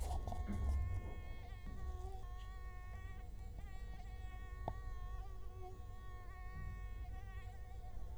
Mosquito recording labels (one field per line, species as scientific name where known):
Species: Culex quinquefasciatus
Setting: cup